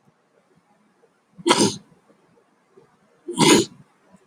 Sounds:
Sneeze